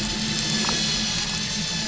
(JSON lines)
{"label": "anthrophony, boat engine", "recorder": "SoundTrap 500"}
{"label": "biophony, damselfish", "recorder": "SoundTrap 500"}